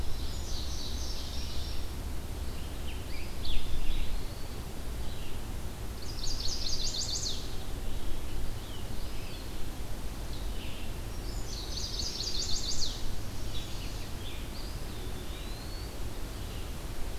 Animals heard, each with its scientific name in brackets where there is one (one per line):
Indigo Bunting (Passerina cyanea)
Chestnut-sided Warbler (Setophaga pensylvanica)
Scarlet Tanager (Piranga olivacea)
Eastern Wood-Pewee (Contopus virens)